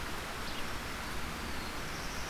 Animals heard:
Black-throated Blue Warbler (Setophaga caerulescens)
Red-eyed Vireo (Vireo olivaceus)

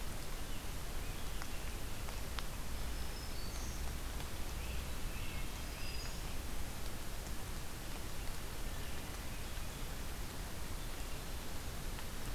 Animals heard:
Black-throated Green Warbler (Setophaga virens)
Great Crested Flycatcher (Myiarchus crinitus)

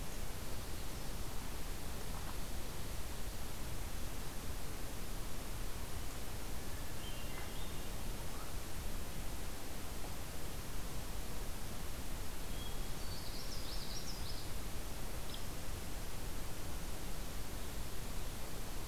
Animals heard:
White-throated Sparrow (Zonotrichia albicollis)
Common Yellowthroat (Geothlypis trichas)
Hermit Thrush (Catharus guttatus)

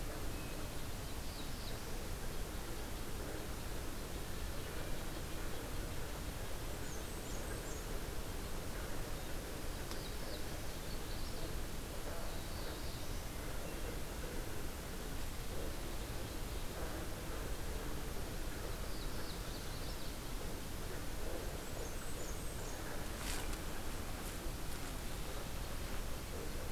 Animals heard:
Magnolia Warbler (Setophaga magnolia)
Blackburnian Warbler (Setophaga fusca)
Black-throated Blue Warbler (Setophaga caerulescens)

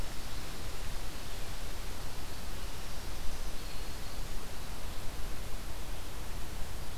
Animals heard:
Black-throated Green Warbler (Setophaga virens)
Red-eyed Vireo (Vireo olivaceus)

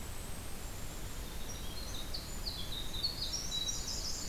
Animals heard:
Golden-crowned Kinglet (Regulus satrapa)
Winter Wren (Troglodytes hiemalis)
Blackburnian Warbler (Setophaga fusca)

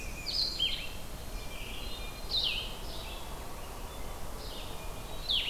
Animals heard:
Blue-headed Vireo (Vireo solitarius)
Blackburnian Warbler (Setophaga fusca)
Hermit Thrush (Catharus guttatus)

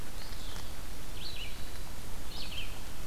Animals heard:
Red-eyed Vireo (Vireo olivaceus)
Hermit Thrush (Catharus guttatus)

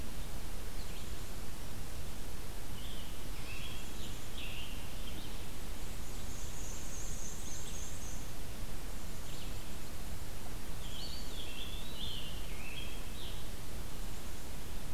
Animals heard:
Eastern Wood-Pewee (Contopus virens)
Red-eyed Vireo (Vireo olivaceus)
Scarlet Tanager (Piranga olivacea)
Black-and-white Warbler (Mniotilta varia)

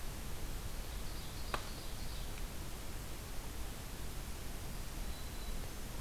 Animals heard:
Ovenbird (Seiurus aurocapilla)
Black-throated Green Warbler (Setophaga virens)

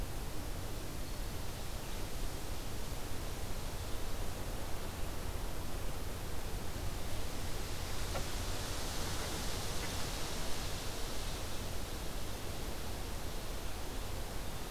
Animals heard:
Black-throated Green Warbler (Setophaga virens)

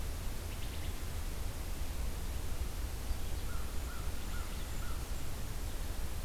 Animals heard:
Blackburnian Warbler (Setophaga fusca)
American Crow (Corvus brachyrhynchos)
unidentified call

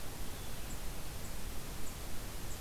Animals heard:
Blue-headed Vireo (Vireo solitarius)

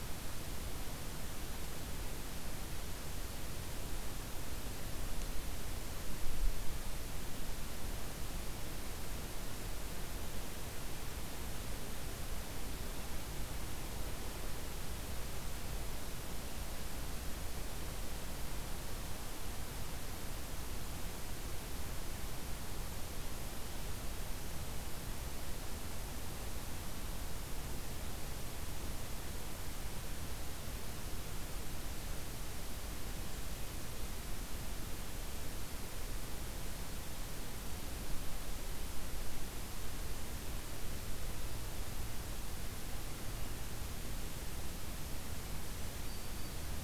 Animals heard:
Black-throated Green Warbler (Setophaga virens)

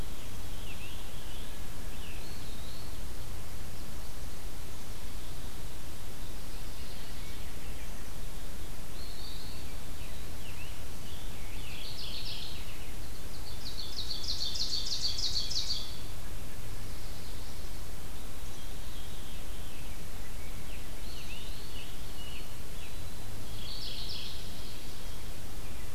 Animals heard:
Mourning Warbler (Geothlypis philadelphia)
Scarlet Tanager (Piranga olivacea)
Veery (Catharus fuscescens)
White-throated Sparrow (Zonotrichia albicollis)
Ovenbird (Seiurus aurocapilla)
Eastern Wood-Pewee (Contopus virens)

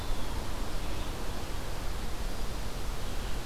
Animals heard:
Red-eyed Vireo (Vireo olivaceus)

